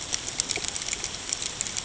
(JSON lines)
{"label": "ambient", "recorder": "HydroMoth"}